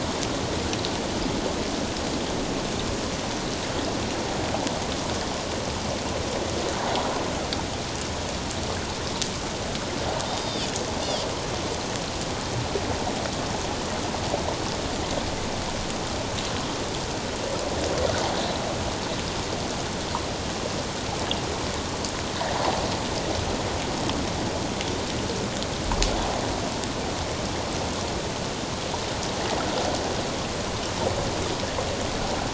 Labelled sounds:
10.3	10.7	Pacific white-sided dolphin, 2.9 to 5.0 kHz

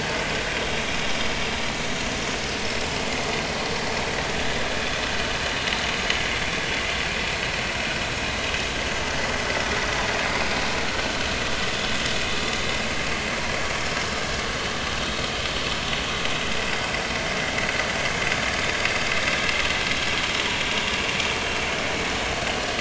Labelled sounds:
19.9	20.2	vessel noise, 5.4 to 5.6 kHz

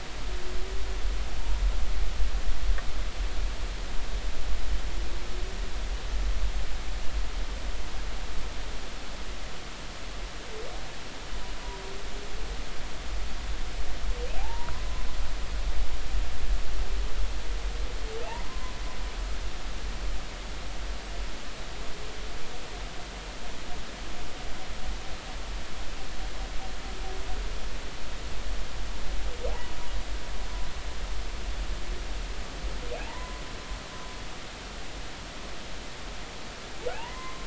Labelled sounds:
14.4	15.0	humpback whale, 0.80 to 1.1 kHz
18.4	18.7	humpback whale, 0.96 to 1.1 kHz
29.5	29.7	humpback whale, 0.80 to 1.0 kHz
33.0	33.4	humpback whale, 0.80 to 1.1 kHz
36.9	37.4	humpback whale, 0.80 to 2.1 kHz

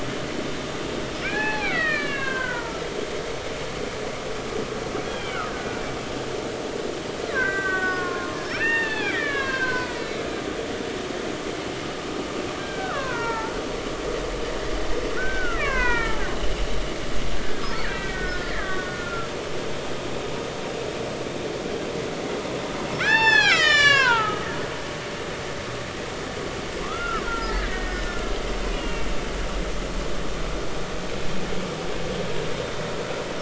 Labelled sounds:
1.2	2.9	killer whale, Bigg's (transient), 0.80 to 4.4 kHz
5.1	5.8	killer whale, Bigg's (transient), 1.4 to 3.4 kHz
7.3	10.2	killer whale, Bigg's (transient), 0.80 to 5.6 kHz
12.6	13.6	killer whale, Bigg's (transient), 0.83 to 2.6 kHz
15.1	16.2	killer whale, Bigg's (transient), 0.90 to 4.2 kHz
17.8	19.3	killer whale, Bigg's (transient), 1.1 to 3.8 kHz
23.0	24.5	killer whale, Bigg's (transient), 0.80 to 7.7 kHz
26.8	28.2	killer whale, Bigg's (transient), 0.86 to 2.1 kHz
28.7	29.1	killer whale, Bigg's (transient), 2.7 to 2.9 kHz

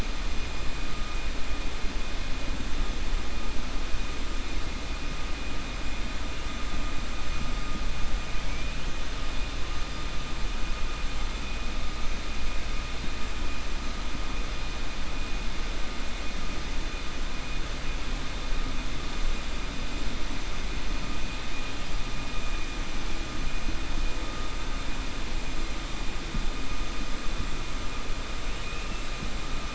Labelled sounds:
28.6	29.0	killer whale, 2.4 to 3.0 kHz

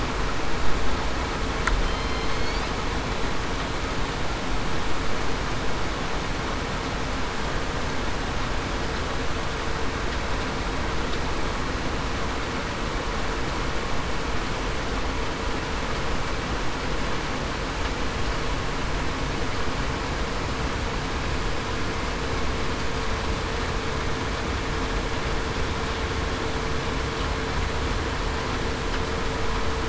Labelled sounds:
1.8	2.2	killer whale, southern resident, 3.1 to 3.2 kHz

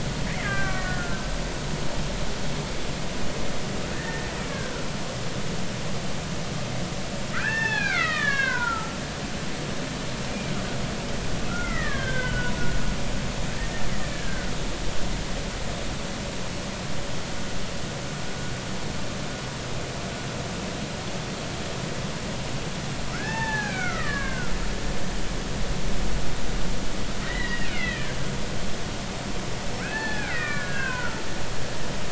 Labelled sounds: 0.4	1.2	killer whale, Bigg's (transient), 1.1 to 2.5 kHz
3.9	4.6	killer whale, Bigg's (transient), 1.7 to 2.5 kHz
7.3	9.0	killer whale, Bigg's (transient), 0.80 to 4.4 kHz
11.5	12.5	killer whale, Bigg's (transient), 1.0 to 2.3 kHz
14.1	14.5	killer whale, Bigg's (transient), 1.4 to 1.8 kHz
23.1	24.5	killer whale, Bigg's (transient), 0.80 to 3.6 kHz
27.2	28.2	killer whale, Bigg's (transient), 1.5 to 3.4 kHz
29.8	31.2	killer whale, Bigg's (transient), 0.80 to 4.5 kHz

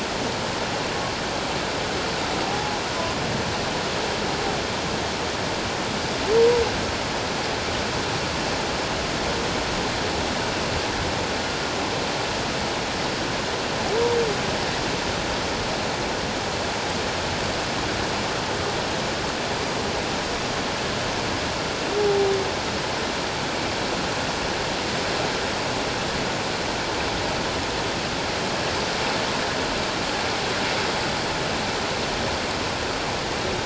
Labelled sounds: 2.5	2.8	humpback whale, 0.78 to 0.88 kHz
22.0	22.3	humpback whale, 0.78 to 0.88 kHz

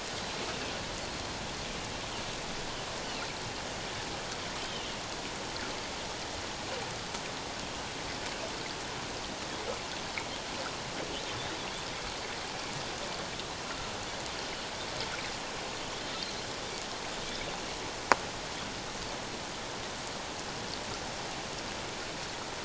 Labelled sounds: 4.6	4.9	Pacific white-sided dolphin, 2.7 to 3.2 kHz
13.7	13.9	Pacific white-sided dolphin, 1.3 to 1.4 kHz

